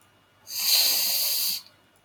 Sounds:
Sneeze